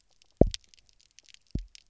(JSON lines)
{"label": "biophony, double pulse", "recorder": "SoundTrap 300"}